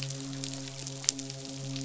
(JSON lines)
{"label": "biophony, midshipman", "recorder": "SoundTrap 500"}